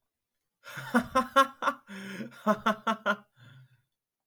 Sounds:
Laughter